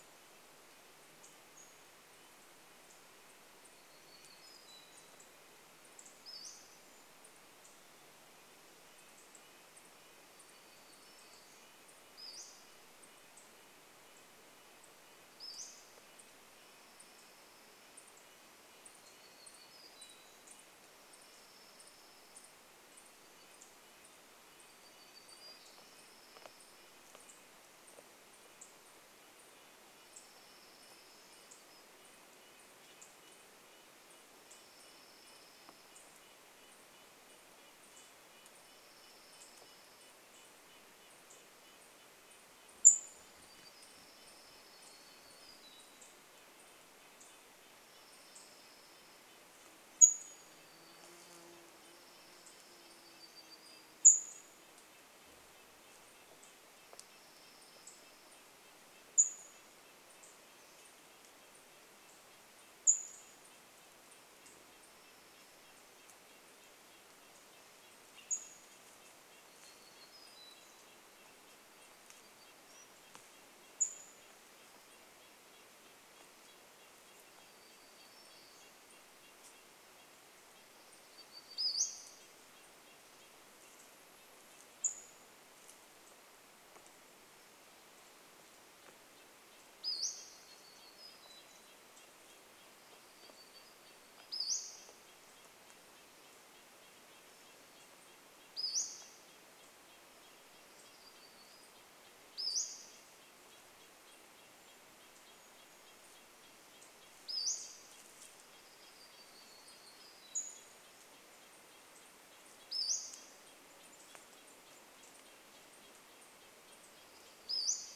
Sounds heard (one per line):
Pacific-slope Flycatcher call
insect buzz
unidentified bird chip note
Dark-eyed Junco song
warbler song
Brown Creeper call
Red-breasted Nuthatch song